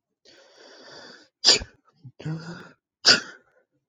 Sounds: Sneeze